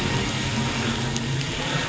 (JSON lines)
{"label": "anthrophony, boat engine", "recorder": "SoundTrap 500"}